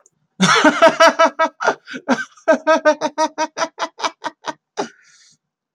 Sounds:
Laughter